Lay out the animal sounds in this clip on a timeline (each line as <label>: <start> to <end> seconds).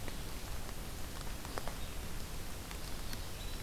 Red-eyed Vireo (Vireo olivaceus): 0.0 to 3.6 seconds
Winter Wren (Troglodytes hiemalis): 2.8 to 3.6 seconds